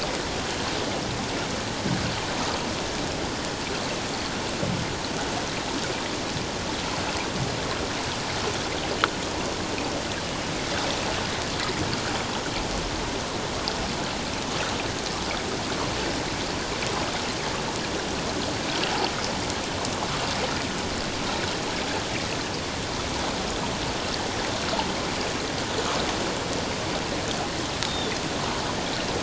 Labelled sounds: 27.9	28.1	Pacific white-sided dolphin, 3.4 to 3.8 kHz

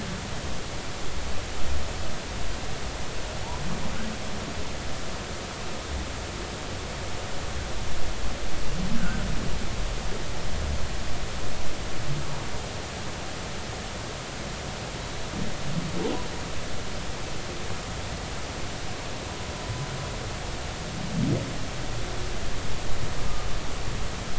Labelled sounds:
8.9	9.2	humpback whale, 1.4 to 1.7 kHz

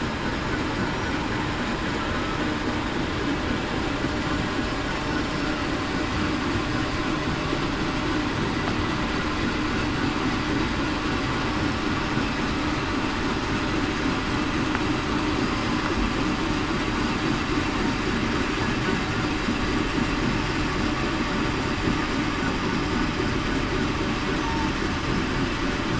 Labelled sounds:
15.4	15.8	killer whale, southern resident, 4.9 to 5.1 kHz
22.8	23.1	killer whale, southern resident, 5.1 to 5.2 kHz

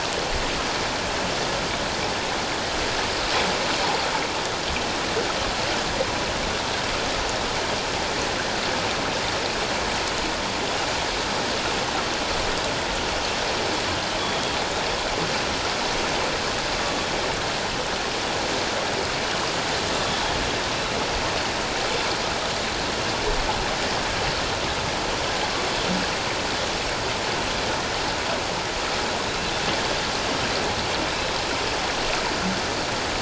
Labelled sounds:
20.0	20.2	Pacific white-sided dolphin, 3.3 to 3.6 kHz
29.3	29.5	Pacific white-sided dolphin, 3.7 to 4.0 kHz

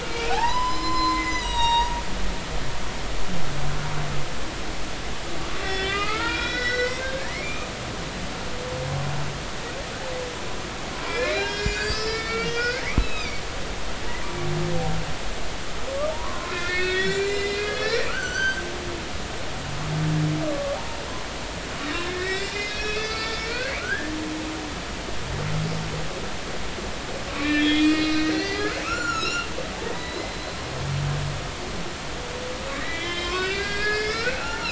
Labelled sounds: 0.0	2.0	humpback whale, 0.80 to 7.7 kHz
5.6	7.7	humpback whale, 1.2 to 5.7 kHz
11.0	13.4	humpback whale, 1.3 to 7.8 kHz
16.1	19.1	humpback whale, 0.86 to 7.4 kHz
20.5	20.8	humpback whale, 1.1 to 1.2 kHz
21.7	24.1	humpback whale, 0.80 to 5.5 kHz
27.3	29.5	humpback whale, 1.1 to 7.3 kHz
29.9	30.5	humpback whale, 1.9 to 4.1 kHz
32.8	34.6	humpback whale, 0.80 to 5.5 kHz

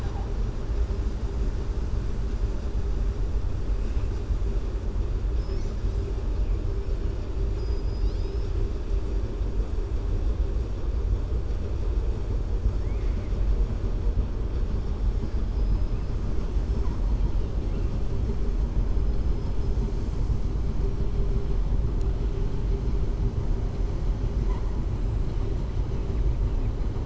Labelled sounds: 7.5	8.5	killer whale, southern resident, 2.8 to 5.8 kHz
12.7	13.3	killer whale, southern resident, 1.5 to 2.8 kHz
15.1	15.9	killer whale, southern resident, 4.8 to 5.8 kHz

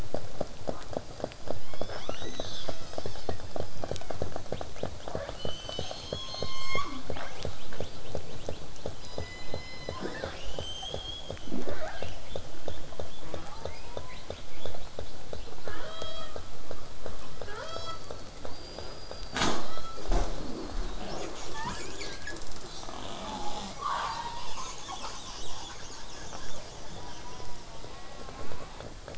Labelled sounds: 1.6	4.3	killer whale, southern resident, 0.11 to 7.8 kHz
4.5	5.9	killer whale, southern resident, L pod, call S18, 1.8 to 6.3 kHz
5.9	7.3	killer whale, southern resident, J pod, call S03, 0.22 to 8.0 kHz
6.9	11.5	killer whale, southern resident, L pod, call S18, 2.2 to 8.0 kHz
9.0	10.5	killer whale, southern resident, J pod, call S03, 0.25 to 8.0 kHz
11.5	12.2	killer whale, southern resident, 0.14 to 6.2 kHz
12.2	13.2	killer whale, southern resident, L pod, call S18, 2.8 to 3.8 kHz
13.2	13.6	killer whale, southern resident, J pod, call S04, 0.11 to 5.5 kHz
13.5	16.5	killer whale, southern resident, L pod, call S18, 0.25 to 8.0 kHz
17.1	18.3	killer whale, southern resident, L pod, call S18, 0.25 to 7.4 kHz
18.5	19.5	killer whale, southern resident, 4.1 to 5.0 kHz
19.6	20.1	killer whale, southern resident, L pod, call S18, 0.76 to 5.7 kHz
20.3	21.0	killer whale, southern resident, whistle, 3.5 to 4.9 kHz
21.0	22.5	killer whale, southern resident, call S10, 0.76 to 8.0 kHz
23.0	27.5	killer whale, southern resident, call S10, 0.27 to 8.0 kHz
26.9	28.9	killer whale, southern resident, 0.33 to 5.0 kHz

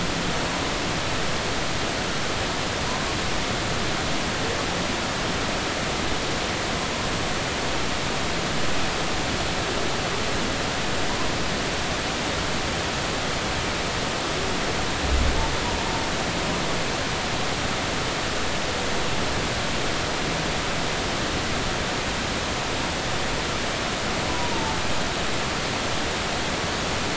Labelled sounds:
24.3	24.8	humpback whale, 0.83 to 1.0 kHz

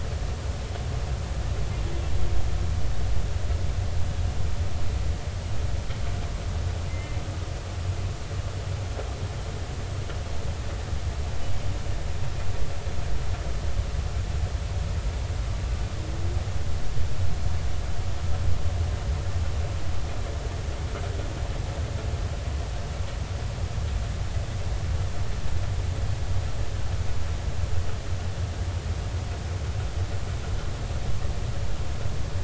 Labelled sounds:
6.9	7.2	humpback whale, 2.0 to 2.2 kHz

